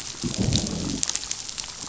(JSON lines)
{"label": "biophony, growl", "recorder": "SoundTrap 500"}